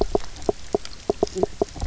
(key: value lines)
label: biophony, knock croak
recorder: SoundTrap 300